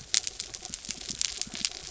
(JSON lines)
{"label": "anthrophony, mechanical", "recorder": "SoundTrap 300"}